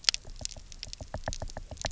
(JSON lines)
{"label": "biophony, knock", "recorder": "SoundTrap 300"}